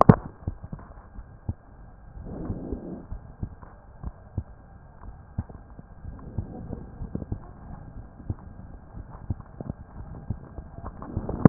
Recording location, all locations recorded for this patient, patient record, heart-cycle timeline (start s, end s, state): aortic valve (AV)
aortic valve (AV)+pulmonary valve (PV)+tricuspid valve (TV)+mitral valve (MV)
#Age: Child
#Sex: Female
#Height: 111.0 cm
#Weight: 20.4 kg
#Pregnancy status: False
#Murmur: Absent
#Murmur locations: nan
#Most audible location: nan
#Systolic murmur timing: nan
#Systolic murmur shape: nan
#Systolic murmur grading: nan
#Systolic murmur pitch: nan
#Systolic murmur quality: nan
#Diastolic murmur timing: nan
#Diastolic murmur shape: nan
#Diastolic murmur grading: nan
#Diastolic murmur pitch: nan
#Diastolic murmur quality: nan
#Outcome: Normal
#Campaign: 2015 screening campaign
0.00	3.08	unannotated
3.08	3.22	S1
3.22	3.40	systole
3.40	3.50	S2
3.50	4.02	diastole
4.02	4.16	S1
4.16	4.34	systole
4.34	4.44	S2
4.44	5.02	diastole
5.02	5.16	S1
5.16	5.34	systole
5.34	5.44	S2
5.44	6.03	diastole
6.03	6.19	S1
6.19	6.36	systole
6.36	6.48	S2
6.48	6.98	diastole
6.98	7.12	S1
7.12	7.28	systole
7.28	7.44	S2
7.44	7.94	diastole
7.94	8.06	S1
8.06	8.26	systole
8.26	8.38	S2
8.38	8.96	diastole
8.96	9.06	S1
9.06	9.26	systole
9.26	9.38	S2
9.38	9.96	diastole
9.96	10.10	S1
10.10	10.27	systole
10.27	10.42	S2
10.42	11.49	unannotated